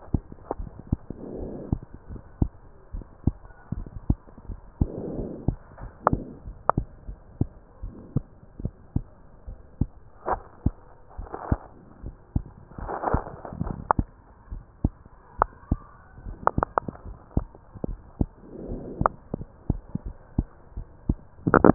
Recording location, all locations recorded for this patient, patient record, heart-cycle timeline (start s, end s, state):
pulmonary valve (PV)
aortic valve (AV)+pulmonary valve (PV)+tricuspid valve (TV)+mitral valve (MV)
#Age: Child
#Sex: Female
#Height: 123.0 cm
#Weight: 33.1 kg
#Pregnancy status: False
#Murmur: Absent
#Murmur locations: nan
#Most audible location: nan
#Systolic murmur timing: nan
#Systolic murmur shape: nan
#Systolic murmur grading: nan
#Systolic murmur pitch: nan
#Systolic murmur quality: nan
#Diastolic murmur timing: nan
#Diastolic murmur shape: nan
#Diastolic murmur grading: nan
#Diastolic murmur pitch: nan
#Diastolic murmur quality: nan
#Outcome: Normal
#Campaign: 2015 screening campaign
0.00	1.67	unannotated
1.67	1.77	S2
1.77	2.10	diastole
2.10	2.22	S1
2.22	2.40	systole
2.40	2.54	S2
2.54	2.94	diastole
2.94	3.06	S1
3.06	3.22	systole
3.22	3.36	S2
3.36	3.72	diastole
3.72	3.88	S1
3.88	4.06	systole
4.06	4.16	S2
4.16	4.50	diastole
4.50	4.60	S1
4.60	4.76	systole
4.76	4.88	S2
4.88	5.22	diastole
5.22	5.34	S1
5.34	5.46	systole
5.46	5.58	S2
5.58	5.76	diastole
5.76	5.92	S1
5.92	6.10	systole
6.10	6.27	S2
6.27	6.42	diastole
6.42	6.54	S1
6.54	6.74	systole
6.74	6.87	S2
6.87	7.06	diastole
7.06	7.18	S1
7.18	7.36	systole
7.36	7.50	S2
7.50	7.84	diastole
7.84	7.96	S1
7.96	8.12	systole
8.12	8.24	S2
8.24	8.60	diastole
8.60	8.72	S1
8.72	8.92	systole
8.92	9.06	S2
9.06	9.48	diastole
9.48	9.58	S1
9.58	9.80	systole
9.80	9.92	S2
9.92	10.28	diastole
10.28	21.74	unannotated